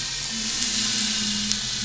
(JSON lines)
{"label": "anthrophony, boat engine", "recorder": "SoundTrap 500"}